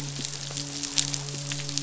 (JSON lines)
{"label": "biophony, midshipman", "recorder": "SoundTrap 500"}